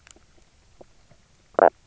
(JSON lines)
{"label": "biophony, knock croak", "recorder": "SoundTrap 300"}